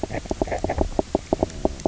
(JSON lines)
{"label": "biophony, knock croak", "recorder": "SoundTrap 300"}